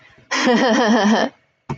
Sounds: Laughter